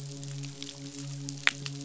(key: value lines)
label: biophony, midshipman
recorder: SoundTrap 500